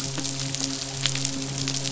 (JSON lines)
{"label": "biophony, midshipman", "recorder": "SoundTrap 500"}